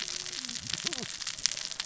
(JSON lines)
{"label": "biophony, cascading saw", "recorder": "SoundTrap 600 or HydroMoth"}